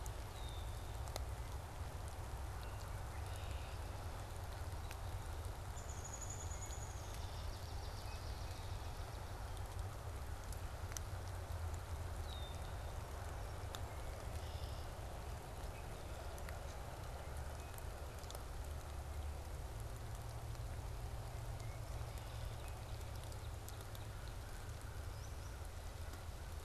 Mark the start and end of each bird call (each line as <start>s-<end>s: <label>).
0.0s-1.0s: Red-winged Blackbird (Agelaius phoeniceus)
2.9s-4.0s: Red-winged Blackbird (Agelaius phoeniceus)
5.6s-7.4s: Downy Woodpecker (Dryobates pubescens)
7.0s-9.5s: Swamp Sparrow (Melospiza georgiana)
12.1s-12.9s: Red-winged Blackbird (Agelaius phoeniceus)
14.2s-15.0s: Red-winged Blackbird (Agelaius phoeniceus)
22.6s-24.8s: Northern Cardinal (Cardinalis cardinalis)
25.0s-25.6s: Solitary Sandpiper (Tringa solitaria)